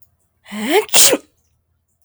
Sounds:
Sneeze